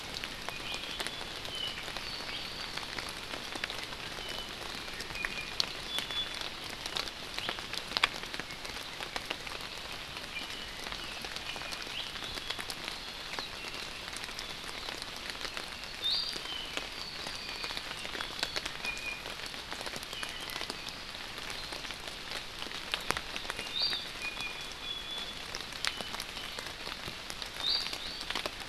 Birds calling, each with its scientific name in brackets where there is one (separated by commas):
Apapane (Himatione sanguinea), Iiwi (Drepanis coccinea)